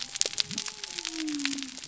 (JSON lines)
{"label": "biophony", "recorder": "SoundTrap 300"}